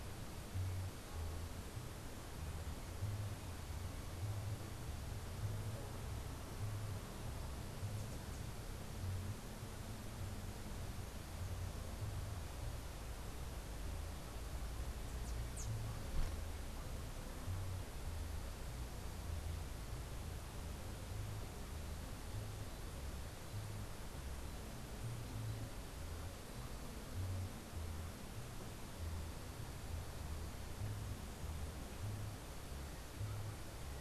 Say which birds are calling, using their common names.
unidentified bird